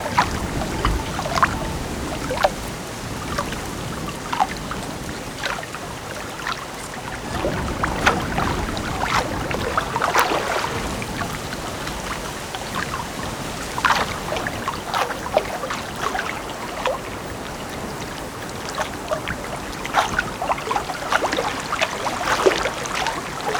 Is there a vehicle?
no